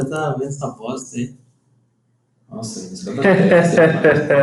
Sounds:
Laughter